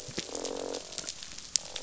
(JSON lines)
{"label": "biophony, croak", "recorder": "SoundTrap 500"}